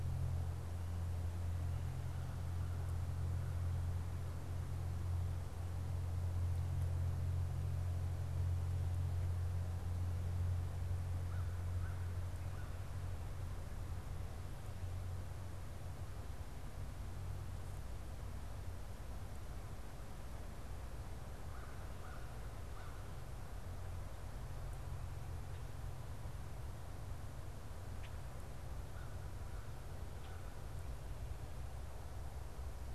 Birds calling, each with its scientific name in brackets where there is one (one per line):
Common Grackle (Quiscalus quiscula)
American Crow (Corvus brachyrhynchos)